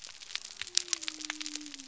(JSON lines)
{"label": "biophony", "recorder": "SoundTrap 300"}